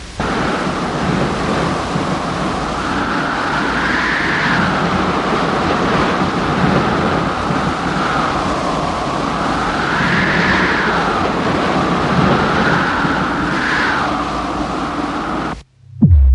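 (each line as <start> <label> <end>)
0.0 Wind howls strongly and continuously outside. 15.7
15.9 Wind bursts loudly against a wall. 16.3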